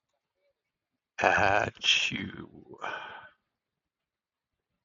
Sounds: Sneeze